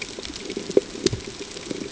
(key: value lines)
label: ambient
recorder: HydroMoth